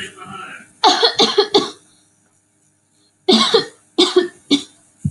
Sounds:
Cough